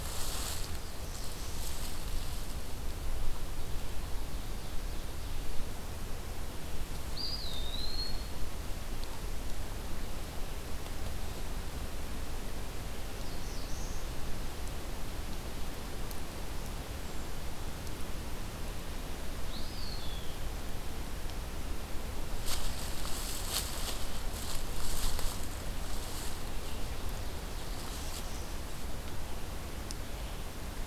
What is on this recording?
Eastern Wood-Pewee, Black-throated Blue Warbler